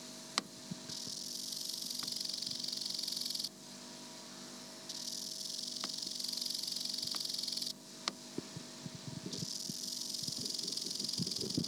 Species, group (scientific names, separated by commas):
Chorthippus biguttulus, Orthoptera